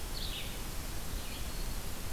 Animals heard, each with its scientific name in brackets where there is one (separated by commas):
Red-eyed Vireo (Vireo olivaceus)